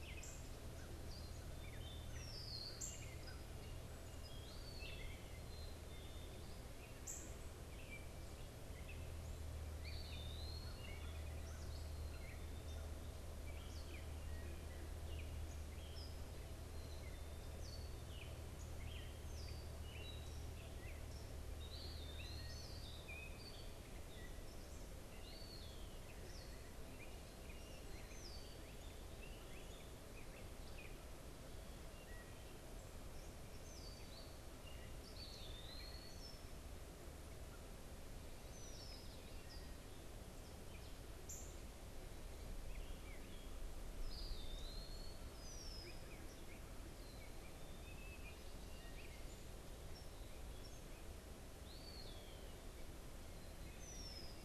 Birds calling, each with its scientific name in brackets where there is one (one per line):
Eastern Wood-Pewee (Contopus virens)
unidentified bird
Gray Catbird (Dumetella carolinensis)
Red-winged Blackbird (Agelaius phoeniceus)
Black-capped Chickadee (Poecile atricapillus)
Northern Cardinal (Cardinalis cardinalis)